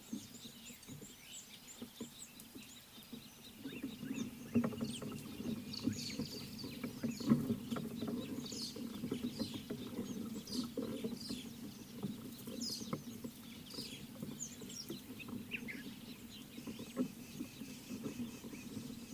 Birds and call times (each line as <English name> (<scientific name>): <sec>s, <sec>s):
Rüppell's Starling (Lamprotornis purpuroptera): 8.6s, 12.7s
Speckled Mousebird (Colius striatus): 14.5s